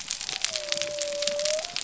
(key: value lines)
label: biophony
recorder: SoundTrap 300